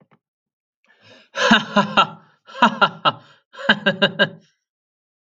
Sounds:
Laughter